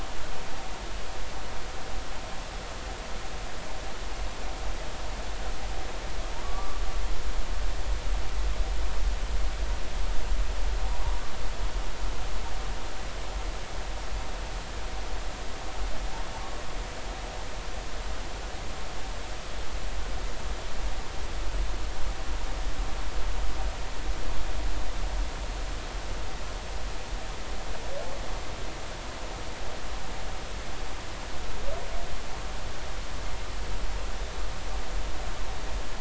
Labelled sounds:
6.4	6.8	humpback whale, 1.1 to 1.2 kHz

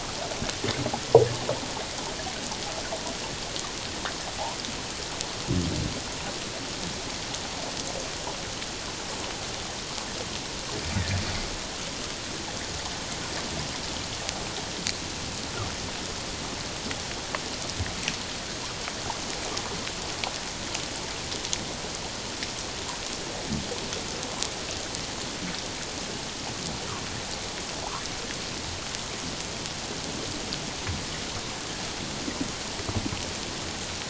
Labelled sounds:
10.9	11.2	humpback whale, 1.6 to 2.1 kHz

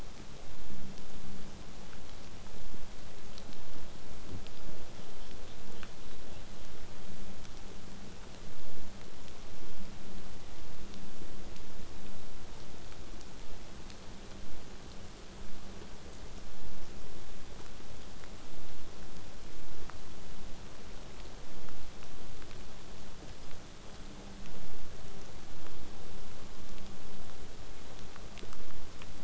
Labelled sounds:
4.5	6.7	killer whale, southern resident, 2.4 to 6.0 kHz

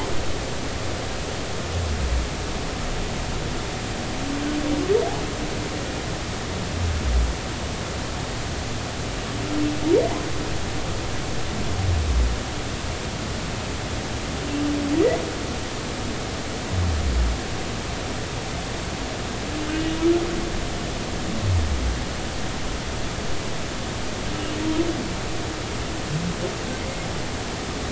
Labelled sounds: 19.7	20.0	humpback whale, 2.7 to 2.9 kHz

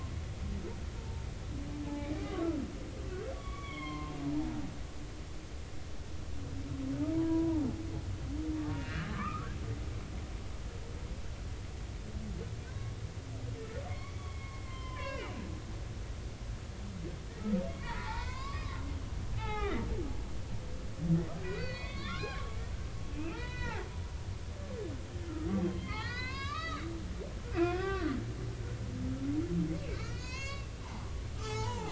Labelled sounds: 1.9	2.5	humpback whale, 0.80 to 1.3 kHz
3.3	4.6	humpback whale, 0.80 to 3.5 kHz
7.1	7.7	humpback whale, 0.80 to 1.0 kHz
8.7	9.5	humpback whale, 0.96 to 3.0 kHz
12.7	15.5	humpback whale, 0.96 to 5.3 kHz
17.7	18.8	humpback whale, 0.80 to 5.2 kHz
19.3	19.9	humpback whale, 0.80 to 3.6 kHz
21.4	22.6	humpback whale, 0.96 to 4.7 kHz
23.2	23.9	humpback whale, 0.80 to 4.0 kHz
25.5	26.9	humpback whale, 0.93 to 6.6 kHz
27.5	28.1	humpback whale, 1.1 to 3.6 kHz
30.0	31.9	humpback whale, 0.80 to 7.3 kHz

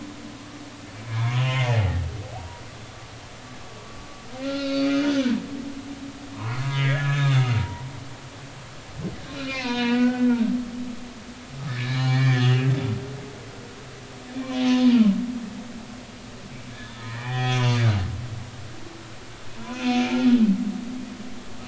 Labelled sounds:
1.1	1.7	humpback whale, 0.86 to 2.4 kHz
2.4	2.6	humpback whale, 0.90 to 0.99 kHz
4.4	5.2	humpback whale, 1.3 to 4.8 kHz
6.3	7.9	humpback whale, 0.90 to 3.9 kHz
9.3	10.4	humpback whale, 0.90 to 5.4 kHz
11.7	12.9	humpback whale, 1.7 to 6.8 kHz
14.5	14.9	humpback whale, 2.8 to 3.7 kHz
16.7	17.6	humpback whale, 0.80 to 3.6 kHz
19.5	20.2	humpback whale, 0.90 to 6.5 kHz

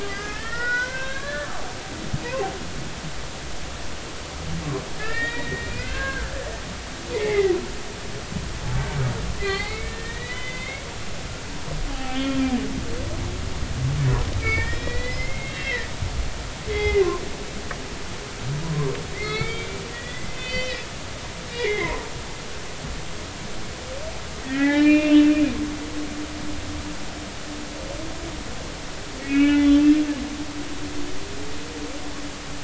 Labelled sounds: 0.0	1.5	humpback whale, 0.93 to 5.5 kHz
5.0	6.3	humpback whale, 1.4 to 3.9 kHz
7.1	7.5	humpback whale, 0.80 to 2.3 kHz
9.4	10.8	humpback whale, 0.80 to 4.8 kHz
11.9	12.5	humpback whale, 0.80 to 3.3 kHz
14.4	15.9	humpback whale, 1.7 to 5.4 kHz
16.7	17.1	humpback whale, 1.9 to 3.4 kHz
19.1	22.0	humpback whale, 1.2 to 5.7 kHz
24.4	25.3	humpback whale, 0.80 to 4.0 kHz
29.2	29.8	humpback whale, 1.3 to 3.5 kHz

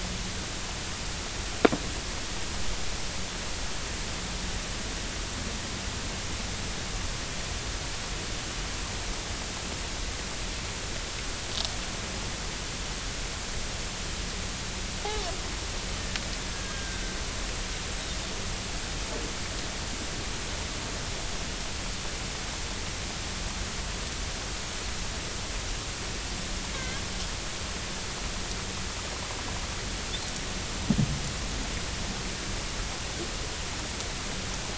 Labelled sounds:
16.5	17.0	Risso's dolphin, 1.5 to 1.7 kHz
26.7	27.0	Risso's dolphin, 1.5 to 2.3 kHz

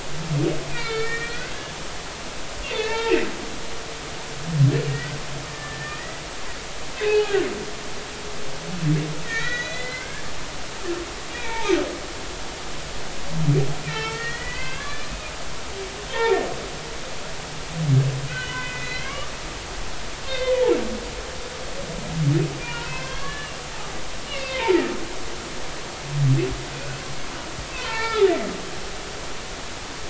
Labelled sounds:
0.7	1.6	humpback whale, 1.3 to 2.6 kHz
2.7	3.3	humpback whale, 0.83 to 2.8 kHz
4.9	6.2	humpback whale, 1.7 to 2.1 kHz
6.9	7.5	humpback whale, 0.80 to 2.7 kHz
9.2	10.2	humpback whale, 1.3 to 6.5 kHz
11.3	11.7	humpback whale, 0.80 to 2.5 kHz
13.8	15.1	humpback whale, 0.83 to 4.8 kHz
16.1	16.5	humpback whale, 1.7 to 3.7 kHz
18.3	19.3	humpback whale, 1.0 to 3.1 kHz
20.3	20.5	humpback whale, 2.0 to 4.3 kHz
22.6	23.5	humpback whale, 0.90 to 5.3 kHz
23.9	24.8	humpback whale, 0.83 to 2.9 kHz
27.8	28.5	humpback whale, 0.83 to 5.0 kHz

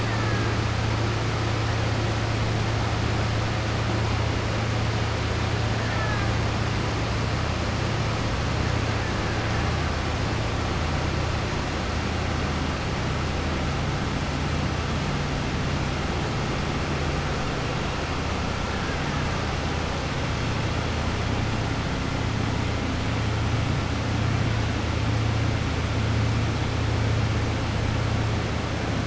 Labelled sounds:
0.0	0.4	killer whale, Bigg's (transient), 0.86 to 2.0 kHz
5.8	6.3	killer whale, Bigg's (transient), 0.67 to 2.4 kHz

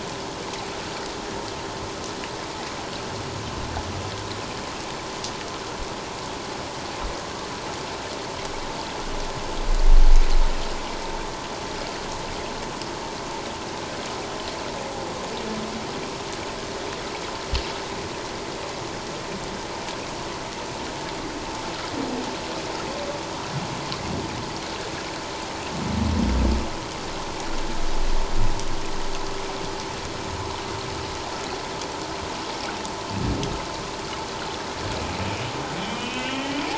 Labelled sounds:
35.9	36.6	humpback whale, 1.8 to 3.3 kHz

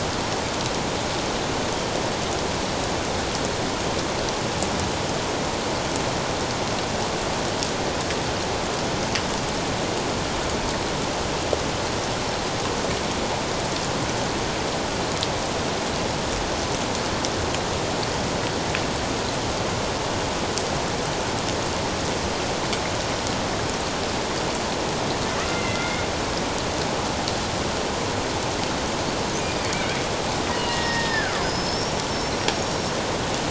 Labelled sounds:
25.5	26.1	killer whale, Bigg's (transient), 2.0 to 2.2 kHz
29.4	29.7	killer whale, Bigg's (transient), 4.8 to 5.0 kHz
30.5	32.0	killer whale, Bigg's (transient), 1.0 to 5.7 kHz
32.3	32.9	killer whale, Bigg's (transient), 5.3 to 5.8 kHz

